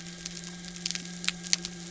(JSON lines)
{"label": "anthrophony, boat engine", "recorder": "SoundTrap 300"}